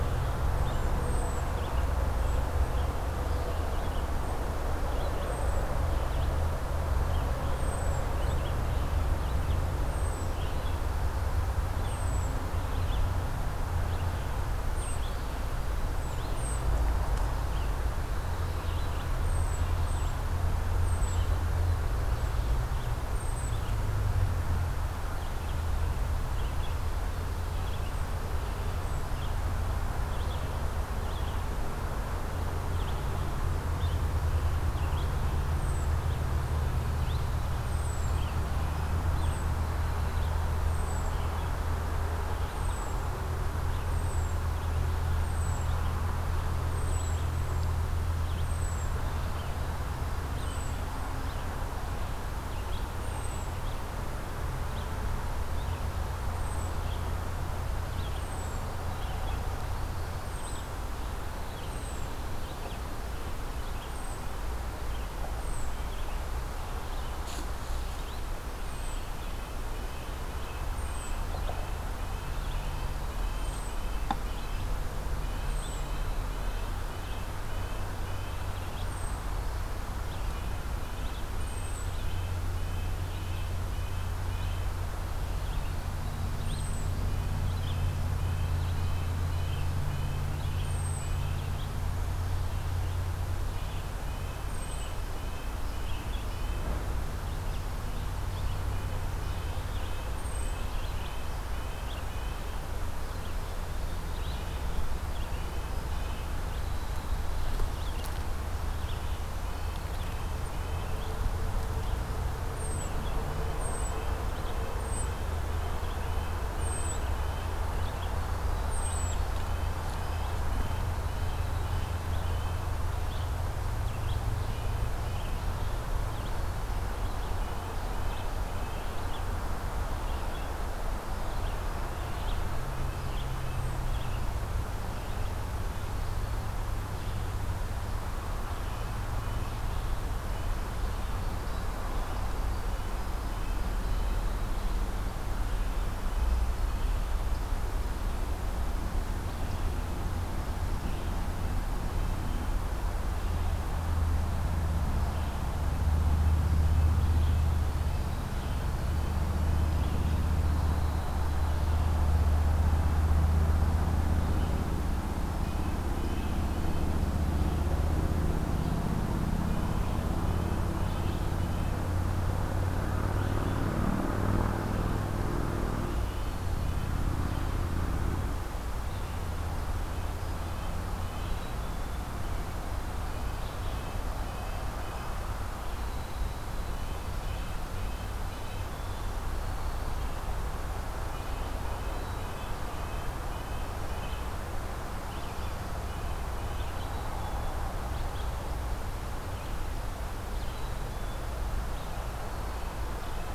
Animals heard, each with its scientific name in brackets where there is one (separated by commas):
Cedar Waxwing (Bombycilla cedrorum), Red-eyed Vireo (Vireo olivaceus), Red-breasted Nuthatch (Sitta canadensis)